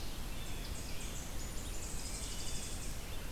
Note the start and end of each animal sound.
0.4s-3.1s: Tennessee Warbler (Leiothlypis peregrina)
1.9s-2.8s: Wood Thrush (Hylocichla mustelina)

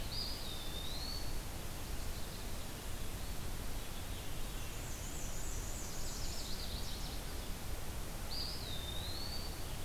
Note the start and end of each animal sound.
0.0s-1.4s: Eastern Wood-Pewee (Contopus virens)
3.6s-4.9s: Veery (Catharus fuscescens)
4.6s-6.4s: Black-and-white Warbler (Mniotilta varia)
6.0s-7.1s: Chestnut-sided Warbler (Setophaga pensylvanica)
8.2s-9.5s: Eastern Wood-Pewee (Contopus virens)

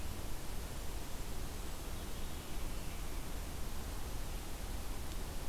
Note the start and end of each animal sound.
1.9s-3.1s: Veery (Catharus fuscescens)

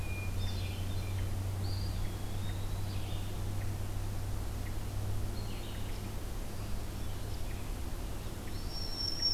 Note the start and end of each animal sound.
0.0s-1.3s: Hermit Thrush (Catharus guttatus)
0.0s-9.3s: Red-eyed Vireo (Vireo olivaceus)
1.6s-2.9s: Eastern Wood-Pewee (Contopus virens)
8.3s-9.3s: Eastern Wood-Pewee (Contopus virens)
8.3s-9.3s: Black-throated Green Warbler (Setophaga virens)

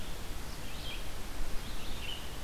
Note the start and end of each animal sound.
0.0s-2.4s: Red-eyed Vireo (Vireo olivaceus)

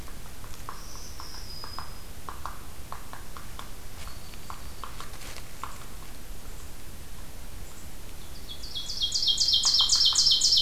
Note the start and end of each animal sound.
0.0s-6.2s: Hairy Woodpecker (Dryobates villosus)
0.6s-2.2s: Black-throated Green Warbler (Setophaga virens)
8.0s-10.6s: Ovenbird (Seiurus aurocapilla)

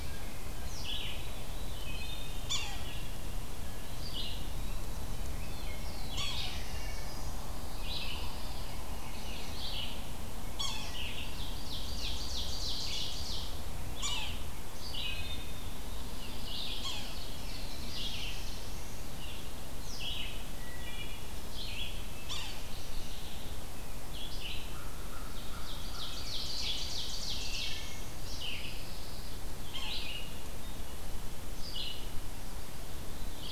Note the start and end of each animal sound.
0.0s-33.5s: Red-eyed Vireo (Vireo olivaceus)
1.0s-2.5s: Veery (Catharus fuscescens)
2.1s-3.0s: Yellow-bellied Sapsucker (Sphyrapicus varius)
3.7s-5.3s: Eastern Wood-Pewee (Contopus virens)
5.2s-7.6s: Black-throated Blue Warbler (Setophaga caerulescens)
5.8s-6.7s: Yellow-bellied Sapsucker (Sphyrapicus varius)
7.6s-8.8s: Pine Warbler (Setophaga pinus)
8.4s-9.5s: Veery (Catharus fuscescens)
10.2s-10.9s: Yellow-bellied Sapsucker (Sphyrapicus varius)
10.8s-13.7s: Ovenbird (Seiurus aurocapilla)
13.7s-14.6s: Yellow-bellied Sapsucker (Sphyrapicus varius)
14.9s-15.8s: Wood Thrush (Hylocichla mustelina)
16.7s-19.2s: Black-throated Blue Warbler (Setophaga caerulescens)
16.7s-17.1s: Yellow-bellied Sapsucker (Sphyrapicus varius)
20.4s-21.8s: Wood Thrush (Hylocichla mustelina)
22.1s-22.6s: Yellow-bellied Sapsucker (Sphyrapicus varius)
24.7s-26.2s: American Crow (Corvus brachyrhynchos)
25.2s-27.9s: Ovenbird (Seiurus aurocapilla)
27.9s-29.4s: Pine Warbler (Setophaga pinus)
29.7s-30.0s: Yellow-bellied Sapsucker (Sphyrapicus varius)

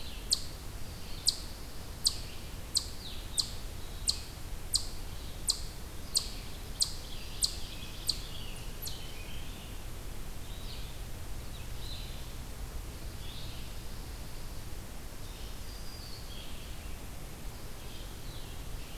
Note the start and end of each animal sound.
0.0s-8.7s: Red-eyed Vireo (Vireo olivaceus)
0.0s-9.1s: Red Squirrel (Tamiasciurus hudsonicus)
9.2s-19.0s: Red-eyed Vireo (Vireo olivaceus)

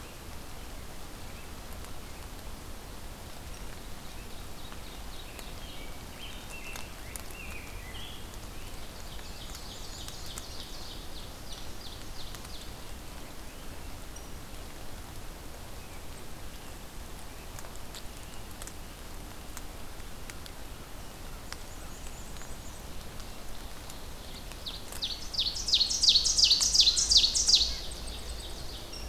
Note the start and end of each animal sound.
3.9s-5.8s: Ovenbird (Seiurus aurocapilla)
5.3s-9.6s: Rose-breasted Grosbeak (Pheucticus ludovicianus)
8.6s-12.9s: Ovenbird (Seiurus aurocapilla)
8.8s-10.5s: Black-and-white Warbler (Mniotilta varia)
18.0s-19.8s: American Robin (Turdus migratorius)
21.2s-23.0s: Black-and-white Warbler (Mniotilta varia)
22.9s-29.1s: Ovenbird (Seiurus aurocapilla)
26.9s-28.1s: Red-breasted Nuthatch (Sitta canadensis)
27.7s-29.1s: Blackpoll Warbler (Setophaga striata)

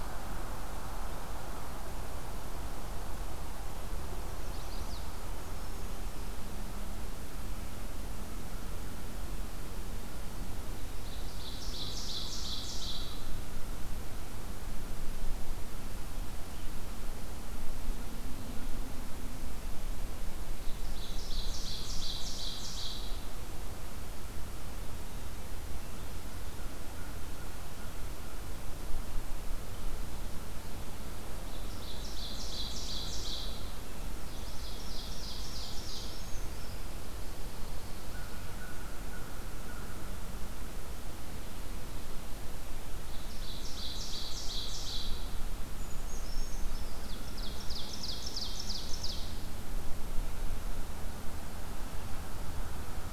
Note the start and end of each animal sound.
4.3s-5.0s: Chestnut-sided Warbler (Setophaga pensylvanica)
10.9s-13.2s: Ovenbird (Seiurus aurocapilla)
20.5s-23.2s: Ovenbird (Seiurus aurocapilla)
31.4s-33.8s: Ovenbird (Seiurus aurocapilla)
34.2s-36.2s: Ovenbird (Seiurus aurocapilla)
35.5s-36.9s: Brown Creeper (Certhia americana)
38.2s-40.3s: American Crow (Corvus brachyrhynchos)
42.9s-45.3s: Ovenbird (Seiurus aurocapilla)
45.6s-47.0s: Brown Creeper (Certhia americana)
46.8s-49.5s: Ovenbird (Seiurus aurocapilla)

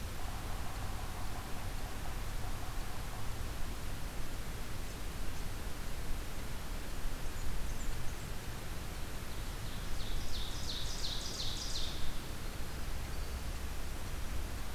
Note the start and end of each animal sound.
0.0s-3.4s: Yellow-bellied Sapsucker (Sphyrapicus varius)
7.0s-8.9s: Blackburnian Warbler (Setophaga fusca)
9.4s-12.2s: Ovenbird (Seiurus aurocapilla)
11.5s-14.5s: Winter Wren (Troglodytes hiemalis)

